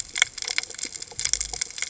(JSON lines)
{"label": "biophony", "recorder": "HydroMoth"}